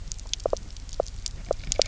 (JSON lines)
{"label": "biophony, knock croak", "recorder": "SoundTrap 300"}